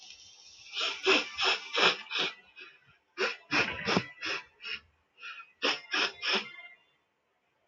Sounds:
Sniff